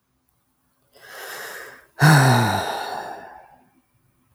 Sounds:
Sigh